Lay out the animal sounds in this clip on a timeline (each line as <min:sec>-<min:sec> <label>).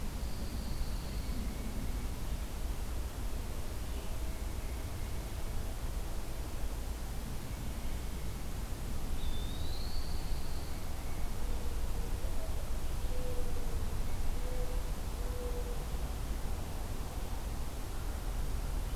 0:00.0-0:01.4 Pine Warbler (Setophaga pinus)
0:01.1-0:02.2 Tufted Titmouse (Baeolophus bicolor)
0:04.2-0:05.6 Tufted Titmouse (Baeolophus bicolor)
0:09.0-0:10.4 Eastern Wood-Pewee (Contopus virens)
0:09.3-0:10.8 Pine Warbler (Setophaga pinus)
0:10.4-0:11.4 Tufted Titmouse (Baeolophus bicolor)
0:11.9-0:15.8 Mourning Dove (Zenaida macroura)